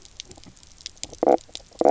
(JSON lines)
{"label": "biophony, knock croak", "recorder": "SoundTrap 300"}